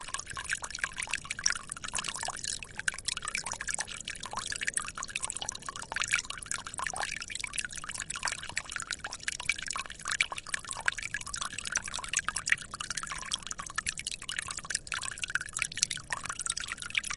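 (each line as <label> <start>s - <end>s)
A continuous stream of water pours onto a surface or into a container, creating a smooth, splashing sound. 0.0s - 17.2s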